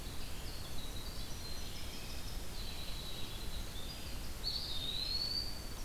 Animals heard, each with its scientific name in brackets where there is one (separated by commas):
Eastern Wood-Pewee (Contopus virens), Red-eyed Vireo (Vireo olivaceus), Winter Wren (Troglodytes hiemalis)